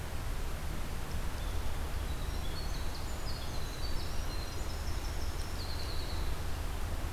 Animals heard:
Winter Wren (Troglodytes hiemalis)

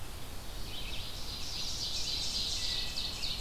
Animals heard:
Ovenbird (Seiurus aurocapilla), American Robin (Turdus migratorius)

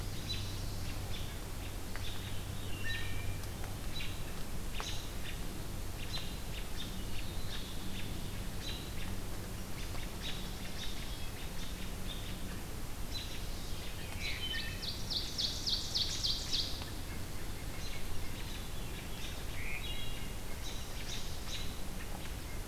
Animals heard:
Hermit Thrush (Catharus guttatus), Ovenbird (Seiurus aurocapilla), White-breasted Nuthatch (Sitta carolinensis), American Robin (Turdus migratorius)

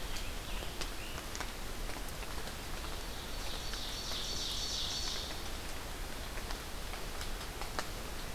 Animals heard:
Scarlet Tanager (Piranga olivacea), Ovenbird (Seiurus aurocapilla)

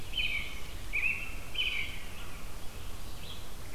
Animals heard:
Red-eyed Vireo (Vireo olivaceus), Blue Jay (Cyanocitta cristata), American Robin (Turdus migratorius)

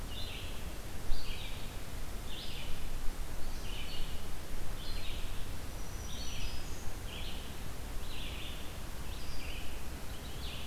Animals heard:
Black-throated Green Warbler (Setophaga virens), Red-eyed Vireo (Vireo olivaceus)

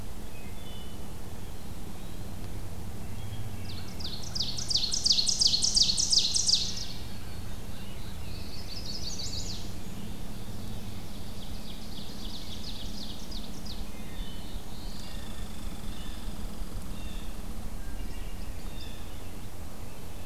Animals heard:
American Crow (Corvus brachyrhynchos), Black-throated Green Warbler (Setophaga virens), Ovenbird (Seiurus aurocapilla), Blue Jay (Cyanocitta cristata), Chestnut-sided Warbler (Setophaga pensylvanica), Wood Thrush (Hylocichla mustelina), Downy Woodpecker (Dryobates pubescens), Black-throated Blue Warbler (Setophaga caerulescens)

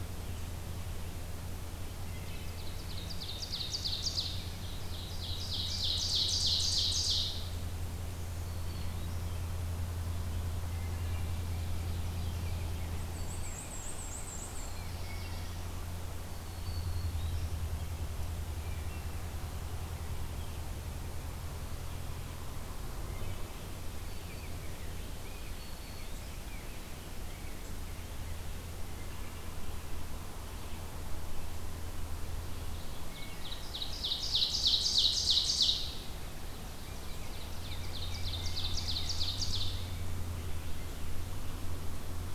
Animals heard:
Black-throated Green Warbler (Setophaga virens), Rose-breasted Grosbeak (Pheucticus ludovicianus), Black-and-white Warbler (Mniotilta varia), Black-throated Blue Warbler (Setophaga caerulescens), Ovenbird (Seiurus aurocapilla), Wood Thrush (Hylocichla mustelina)

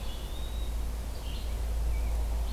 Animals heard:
Eastern Wood-Pewee (Contopus virens), Red-eyed Vireo (Vireo olivaceus), Rose-breasted Grosbeak (Pheucticus ludovicianus)

